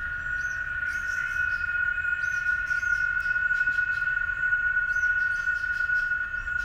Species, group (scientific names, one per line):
Quesada gigas
Cicadidae